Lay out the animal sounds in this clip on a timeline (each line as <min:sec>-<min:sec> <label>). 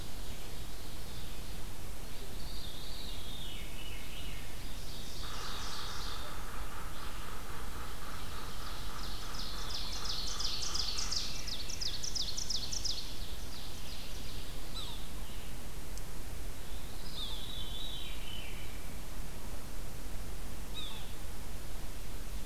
0:00.0-0:01.5 Ovenbird (Seiurus aurocapilla)
0:00.0-0:10.7 Red-eyed Vireo (Vireo olivaceus)
0:02.2-0:04.3 Veery (Catharus fuscescens)
0:04.2-0:06.4 Ovenbird (Seiurus aurocapilla)
0:05.1-0:11.2 Yellow-bellied Sapsucker (Sphyrapicus varius)
0:08.2-0:14.6 Ovenbird (Seiurus aurocapilla)
0:10.0-0:12.1 Veery (Catharus fuscescens)
0:14.5-0:15.3 Yellow-bellied Sapsucker (Sphyrapicus varius)
0:16.8-0:18.7 Veery (Catharus fuscescens)
0:17.0-0:17.5 Yellow-bellied Sapsucker (Sphyrapicus varius)
0:20.5-0:21.2 Yellow-bellied Sapsucker (Sphyrapicus varius)